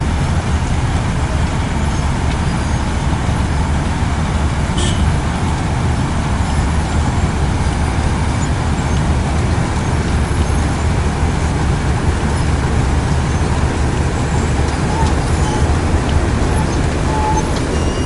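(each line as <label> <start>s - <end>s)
Loud, steady construction noise on the street. 0.0s - 18.1s
A car horn sounds loudly in the distance on the street. 4.7s - 5.1s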